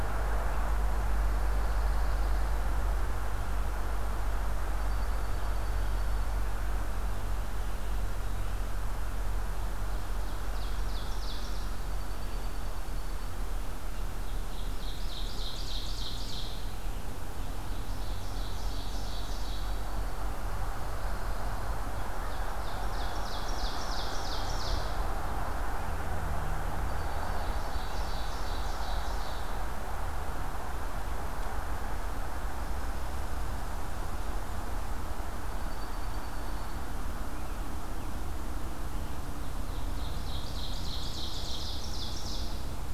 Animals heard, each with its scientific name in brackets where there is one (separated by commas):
Ovenbird (Seiurus aurocapilla), Red Squirrel (Tamiasciurus hudsonicus), Dark-eyed Junco (Junco hyemalis), Pine Warbler (Setophaga pinus)